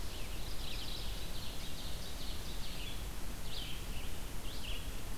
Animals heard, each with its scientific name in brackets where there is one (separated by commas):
Red-eyed Vireo (Vireo olivaceus), Mourning Warbler (Geothlypis philadelphia), Ovenbird (Seiurus aurocapilla)